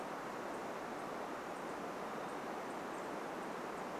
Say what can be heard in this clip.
Townsend's Warbler call